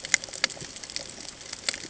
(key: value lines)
label: ambient
recorder: HydroMoth